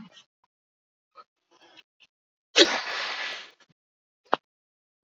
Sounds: Sneeze